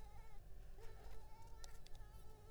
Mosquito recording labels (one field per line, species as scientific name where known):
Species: Culex pipiens complex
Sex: female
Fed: unfed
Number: one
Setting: cup